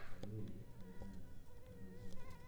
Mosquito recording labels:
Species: mosquito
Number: one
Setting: cup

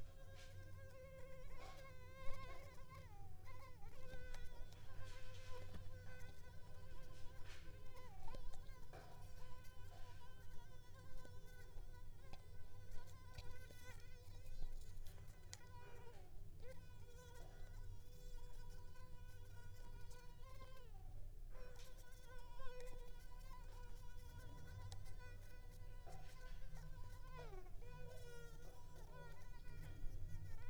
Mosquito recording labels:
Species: Culex pipiens complex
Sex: female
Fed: unfed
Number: one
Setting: cup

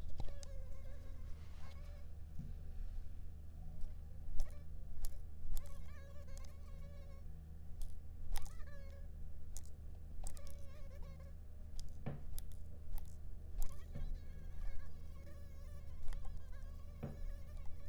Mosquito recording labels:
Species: Anopheles arabiensis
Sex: female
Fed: unfed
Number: one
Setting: cup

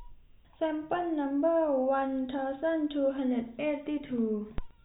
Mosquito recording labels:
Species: no mosquito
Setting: cup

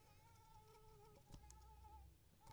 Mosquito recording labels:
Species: mosquito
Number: one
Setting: cup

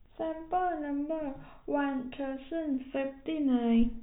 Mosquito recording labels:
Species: no mosquito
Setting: cup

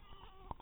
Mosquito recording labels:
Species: mosquito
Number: one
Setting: cup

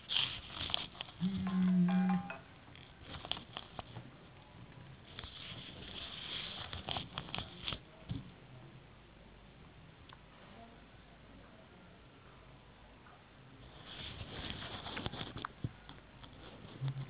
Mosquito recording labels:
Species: no mosquito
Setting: insect culture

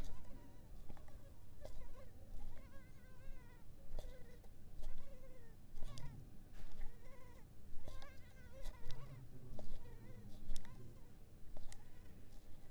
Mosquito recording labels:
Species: Culex pipiens complex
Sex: female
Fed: unfed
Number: one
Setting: cup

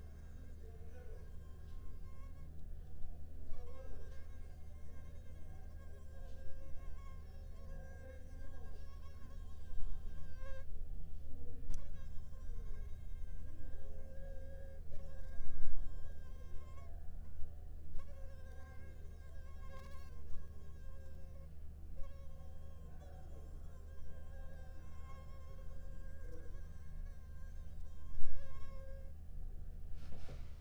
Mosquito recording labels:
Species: Anopheles arabiensis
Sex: female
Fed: unfed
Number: one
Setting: cup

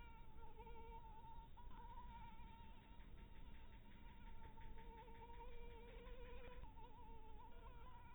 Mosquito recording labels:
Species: Anopheles maculatus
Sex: female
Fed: blood-fed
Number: one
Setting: cup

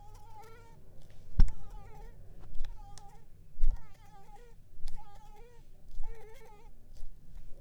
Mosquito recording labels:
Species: Mansonia uniformis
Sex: female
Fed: unfed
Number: one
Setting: cup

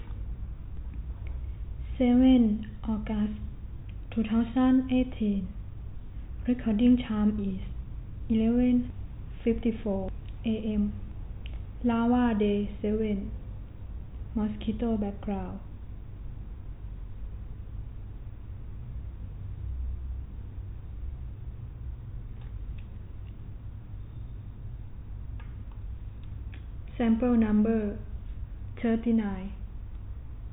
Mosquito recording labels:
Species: no mosquito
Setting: cup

